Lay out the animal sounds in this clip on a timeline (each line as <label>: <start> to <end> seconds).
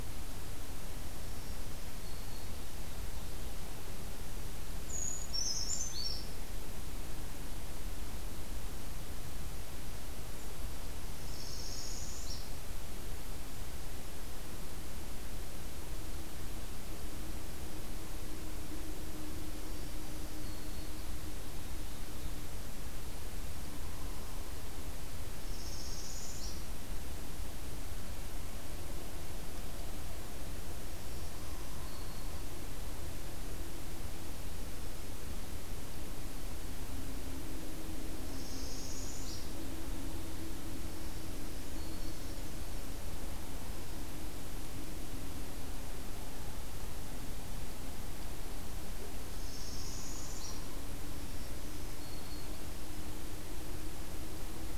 Black-throated Green Warbler (Setophaga virens): 1.1 to 2.5 seconds
Brown Creeper (Certhia americana): 4.8 to 6.4 seconds
Northern Parula (Setophaga americana): 11.2 to 12.4 seconds
Black-throated Green Warbler (Setophaga virens): 19.6 to 21.0 seconds
Northern Parula (Setophaga americana): 25.3 to 26.7 seconds
Black-throated Green Warbler (Setophaga virens): 30.8 to 32.5 seconds
Northern Parula (Setophaga americana): 38.2 to 39.5 seconds
Black-throated Green Warbler (Setophaga virens): 40.9 to 42.3 seconds
Northern Parula (Setophaga americana): 49.3 to 50.6 seconds
Black-throated Green Warbler (Setophaga virens): 51.3 to 52.6 seconds